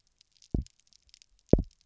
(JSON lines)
{"label": "biophony, double pulse", "recorder": "SoundTrap 300"}